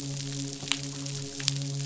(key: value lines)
label: biophony, midshipman
recorder: SoundTrap 500